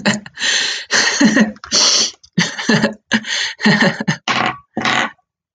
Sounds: Laughter